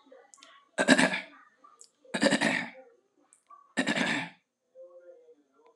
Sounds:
Throat clearing